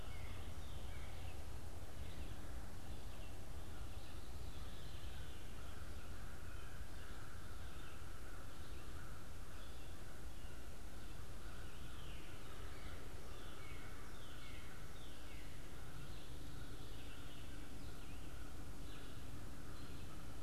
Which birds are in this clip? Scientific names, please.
Corvus brachyrhynchos, Cardinalis cardinalis, Vireo olivaceus, Catharus fuscescens